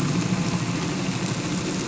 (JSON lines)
{"label": "anthrophony, boat engine", "recorder": "SoundTrap 300"}